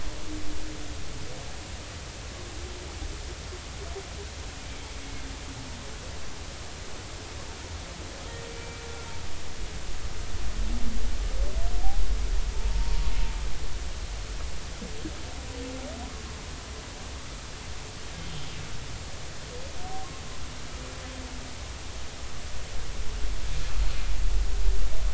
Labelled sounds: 8.5	8.8	humpback whale, 2.3 to 2.4 kHz
12.5	13.0	humpback whale, 0.86 to 0.99 kHz

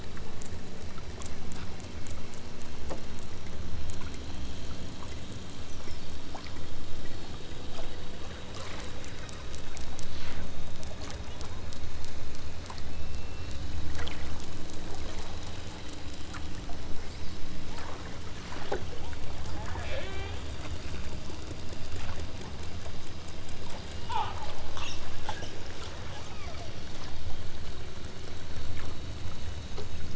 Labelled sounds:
19.0	20.4	killer whale, southern Alaska resident, 0.64 to 4.3 kHz
24.0	24.4	killer whale, southern Alaska resident, 0.56 to 4.1 kHz
26.1	26.6	killer whale, southern Alaska resident, 1.2 to 3.2 kHz

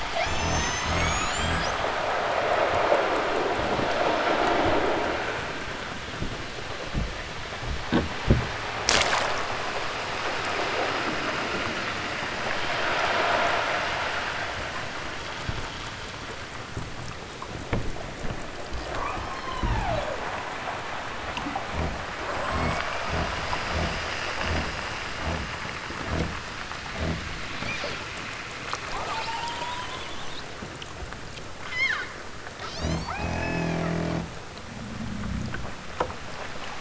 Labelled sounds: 0.0	1.8	killer whale, southern Alaska resident, 0.41 to 8.0 kHz
18.9	20.3	killer whale, southern Alaska resident, 0.32 to 8.0 kHz
28.8	30.3	killer whale, southern Alaska resident, 0.32 to 8.0 kHz
31.6	32.1	killer whale, southern Alaska resident, 0.69 to 7.1 kHz
32.6	33.9	killer whale, southern Alaska resident, 0.46 to 8.0 kHz

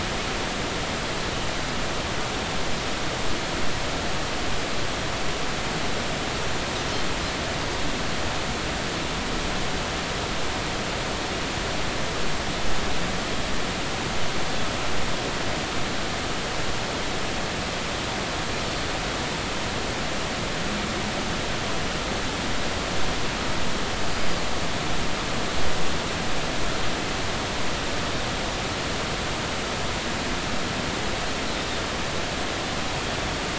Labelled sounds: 24.1	24.4	Pacific white-sided dolphin, 4.8 to 5.0 kHz

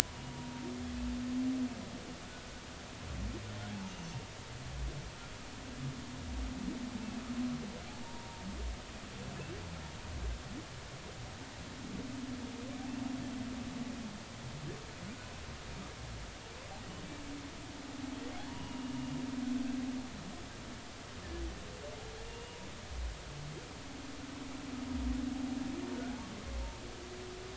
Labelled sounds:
0.0	0.7	humpback whale, 0.90 to 1.0 kHz
3.8	4.1	humpback whale, 2.8 to 2.9 kHz
8.0	8.4	humpback whale, 0.86 to 0.99 kHz
18.5	18.9	humpback whale, 0.90 to 2.9 kHz
22.2	22.6	humpback whale, 2.7 to 2.9 kHz

